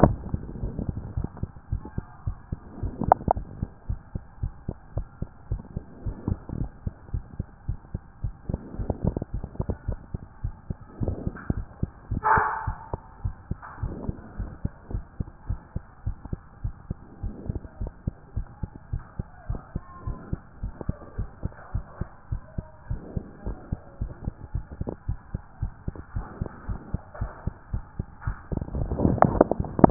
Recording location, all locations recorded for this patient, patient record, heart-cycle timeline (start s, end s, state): mitral valve (MV)
aortic valve (AV)+pulmonary valve (PV)+tricuspid valve (TV)+mitral valve (MV)
#Age: Child
#Sex: Male
#Height: 136.0 cm
#Weight: 31.3 kg
#Pregnancy status: False
#Murmur: Present
#Murmur locations: aortic valve (AV)+pulmonary valve (PV)
#Most audible location: pulmonary valve (PV)
#Systolic murmur timing: Early-systolic
#Systolic murmur shape: Plateau
#Systolic murmur grading: I/VI
#Systolic murmur pitch: Low
#Systolic murmur quality: Harsh
#Diastolic murmur timing: nan
#Diastolic murmur shape: nan
#Diastolic murmur grading: nan
#Diastolic murmur pitch: nan
#Diastolic murmur quality: nan
#Outcome: Normal
#Campaign: 2014 screening campaign
0.00	1.70	unannotated
1.70	1.82	S1
1.82	1.96	systole
1.96	2.06	S2
2.06	2.26	diastole
2.26	2.36	S1
2.36	2.50	systole
2.50	2.58	S2
2.58	2.82	diastole
2.82	2.94	S1
2.94	3.04	systole
3.04	3.16	S2
3.16	3.34	diastole
3.34	3.46	S1
3.46	3.60	systole
3.60	3.70	S2
3.70	3.88	diastole
3.88	4.00	S1
4.00	4.14	systole
4.14	4.22	S2
4.22	4.42	diastole
4.42	4.52	S1
4.52	4.66	systole
4.66	4.76	S2
4.76	4.96	diastole
4.96	5.06	S1
5.06	5.20	systole
5.20	5.28	S2
5.28	5.50	diastole
5.50	5.62	S1
5.62	5.74	systole
5.74	5.84	S2
5.84	6.04	diastole
6.04	6.16	S1
6.16	6.26	systole
6.26	6.38	S2
6.38	6.58	diastole
6.58	6.70	S1
6.70	6.84	systole
6.84	6.94	S2
6.94	7.12	diastole
7.12	7.24	S1
7.24	7.38	systole
7.38	7.46	S2
7.46	7.68	diastole
7.68	7.78	S1
7.78	7.92	systole
7.92	8.00	S2
8.00	8.22	diastole
8.22	8.34	S1
8.34	8.48	systole
8.48	8.60	S2
8.60	8.78	diastole
8.78	8.92	S1
8.92	9.04	systole
9.04	9.16	S2
9.16	9.34	diastole
9.34	9.44	S1
9.44	9.60	systole
9.60	9.70	S2
9.70	9.88	diastole
9.88	9.98	S1
9.98	10.12	systole
10.12	10.22	S2
10.22	10.42	diastole
10.42	10.54	S1
10.54	10.68	systole
10.68	10.76	S2
10.76	11.00	diastole
11.00	11.16	S1
11.16	11.26	systole
11.26	11.32	S2
11.32	11.52	diastole
11.52	11.66	S1
11.66	11.80	systole
11.80	11.90	S2
11.90	12.10	diastole
12.10	12.22	S1
12.22	12.34	systole
12.34	12.44	S2
12.44	12.66	diastole
12.66	12.78	S1
12.78	12.92	systole
12.92	13.00	S2
13.00	13.24	diastole
13.24	13.34	S1
13.34	13.50	systole
13.50	13.58	S2
13.58	13.82	diastole
13.82	13.94	S1
13.94	14.06	systole
14.06	14.16	S2
14.16	14.38	diastole
14.38	14.50	S1
14.50	14.62	systole
14.62	14.72	S2
14.72	14.92	diastole
14.92	15.04	S1
15.04	15.18	systole
15.18	15.28	S2
15.28	15.48	diastole
15.48	15.60	S1
15.60	15.74	systole
15.74	15.84	S2
15.84	16.06	diastole
16.06	16.16	S1
16.16	16.30	systole
16.30	16.40	S2
16.40	16.64	diastole
16.64	16.74	S1
16.74	16.88	systole
16.88	16.96	S2
16.96	17.22	diastole
17.22	17.34	S1
17.34	17.48	systole
17.48	17.60	S2
17.60	17.80	diastole
17.80	17.92	S1
17.92	18.06	systole
18.06	18.14	S2
18.14	18.36	diastole
18.36	18.46	S1
18.46	18.62	systole
18.62	18.70	S2
18.70	18.92	diastole
18.92	19.04	S1
19.04	19.18	systole
19.18	19.26	S2
19.26	19.48	diastole
19.48	19.60	S1
19.60	19.74	systole
19.74	19.82	S2
19.82	20.06	diastole
20.06	20.18	S1
20.18	20.30	systole
20.30	20.40	S2
20.40	20.62	diastole
20.62	20.74	S1
20.74	20.88	systole
20.88	20.96	S2
20.96	21.18	diastole
21.18	21.28	S1
21.28	21.42	systole
21.42	21.52	S2
21.52	21.74	diastole
21.74	21.84	S1
21.84	22.00	systole
22.00	22.08	S2
22.08	22.30	diastole
22.30	22.42	S1
22.42	22.56	systole
22.56	22.66	S2
22.66	22.90	diastole
22.90	23.02	S1
23.02	23.14	systole
23.14	23.24	S2
23.24	23.46	diastole
23.46	23.58	S1
23.58	23.70	systole
23.70	23.80	S2
23.80	24.00	diastole
24.00	24.12	S1
24.12	24.24	systole
24.24	24.34	S2
24.34	24.54	diastole
24.54	24.64	S1
24.64	24.80	systole
24.80	24.90	S2
24.90	25.08	diastole
25.08	25.18	S1
25.18	25.32	systole
25.32	25.42	S2
25.42	25.60	diastole
25.60	25.72	S1
25.72	25.86	systole
25.86	25.94	S2
25.94	26.14	diastole
26.14	26.26	S1
26.26	26.40	systole
26.40	26.48	S2
26.48	26.68	diastole
26.68	26.80	S1
26.80	26.92	systole
26.92	27.02	S2
27.02	27.20	diastole
27.20	27.32	S1
27.32	27.46	systole
27.46	27.54	S2
27.54	27.72	diastole
27.72	27.84	S1
27.84	27.98	systole
27.98	28.08	S2
28.08	28.26	diastole
28.26	29.90	unannotated